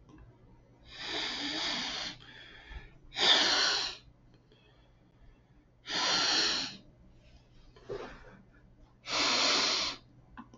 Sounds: Sniff